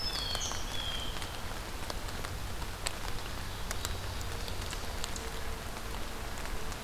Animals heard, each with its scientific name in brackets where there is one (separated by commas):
Blue Jay (Cyanocitta cristata), Eastern Wood-Pewee (Contopus virens), Black-throated Green Warbler (Setophaga virens), Ovenbird (Seiurus aurocapilla)